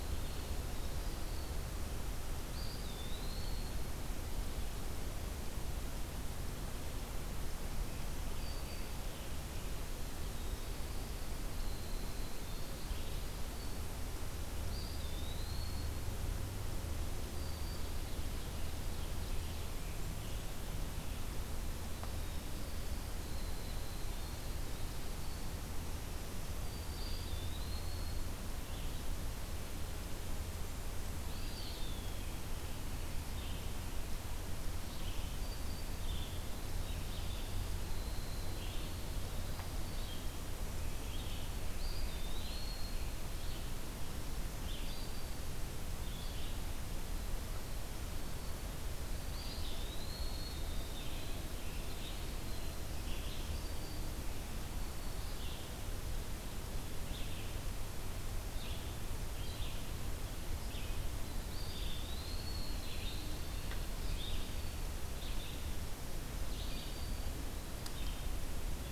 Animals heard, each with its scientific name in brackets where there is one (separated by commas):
Eastern Wood-Pewee (Contopus virens), Red-eyed Vireo (Vireo olivaceus), Winter Wren (Troglodytes hiemalis), Black-throated Green Warbler (Setophaga virens), Ovenbird (Seiurus aurocapilla)